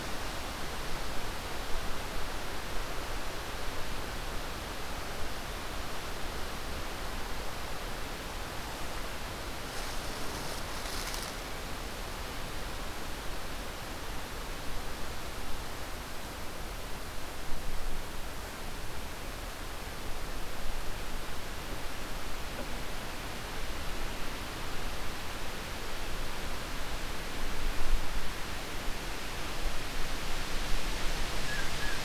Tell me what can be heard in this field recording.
Blue Jay